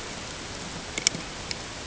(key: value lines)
label: ambient
recorder: HydroMoth